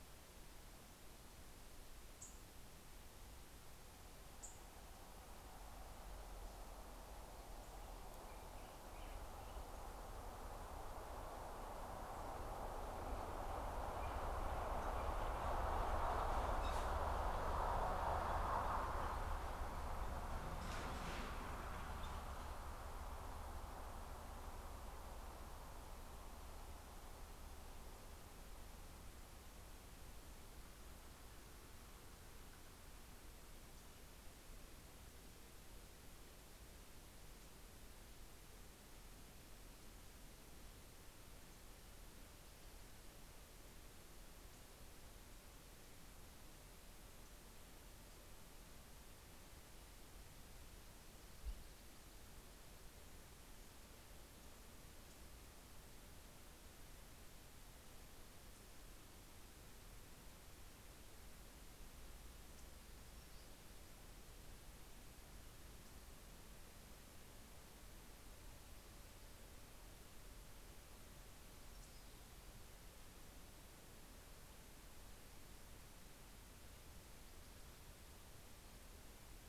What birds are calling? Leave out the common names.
Leiothlypis ruficapilla, Pheucticus melanocephalus